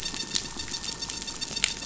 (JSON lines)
{"label": "anthrophony, boat engine", "recorder": "SoundTrap 500"}